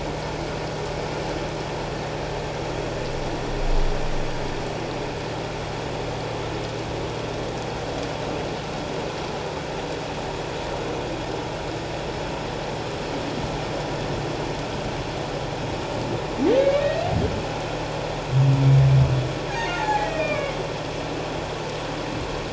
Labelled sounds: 16.6	17.1	humpback whale, 2.1 to 2.9 kHz
19.5	20.6	humpback whale, 0.78 to 6.6 kHz

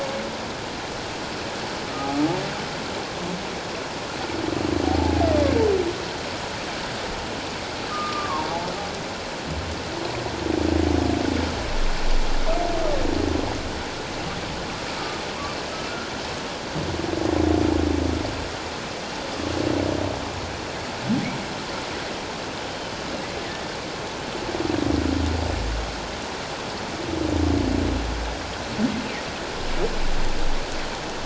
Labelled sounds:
1.9	2.2	humpback whale, 1.2 to 1.4 kHz
4.8	5.2	humpback whale, 0.78 to 0.91 kHz
7.9	8.5	humpback whale, 0.88 to 1.3 kHz

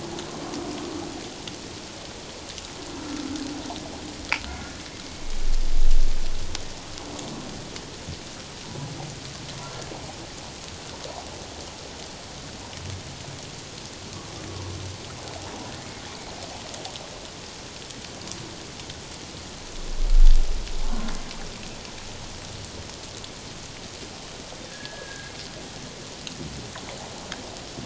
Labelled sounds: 24.7	25.3	humpback whale, 1.6 to 1.8 kHz

